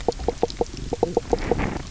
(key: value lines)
label: biophony, knock croak
recorder: SoundTrap 300